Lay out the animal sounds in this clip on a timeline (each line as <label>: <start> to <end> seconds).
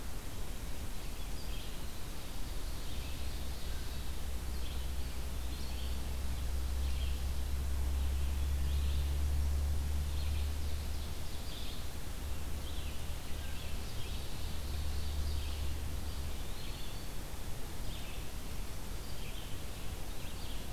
Red-eyed Vireo (Vireo olivaceus): 0.0 to 20.7 seconds
Ovenbird (Seiurus aurocapilla): 2.3 to 4.0 seconds
Eastern Wood-Pewee (Contopus virens): 4.9 to 6.0 seconds
Ovenbird (Seiurus aurocapilla): 10.0 to 11.7 seconds
Wood Thrush (Hylocichla mustelina): 13.3 to 13.8 seconds
Ovenbird (Seiurus aurocapilla): 13.6 to 15.6 seconds
Eastern Wood-Pewee (Contopus virens): 15.9 to 17.2 seconds